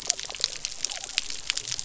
{"label": "biophony", "recorder": "SoundTrap 300"}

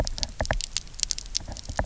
{"label": "biophony, knock", "recorder": "SoundTrap 300"}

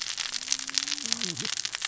{"label": "biophony, cascading saw", "recorder": "SoundTrap 600 or HydroMoth"}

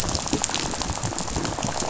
{"label": "biophony, rattle", "recorder": "SoundTrap 500"}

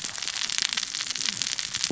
{"label": "biophony, cascading saw", "recorder": "SoundTrap 600 or HydroMoth"}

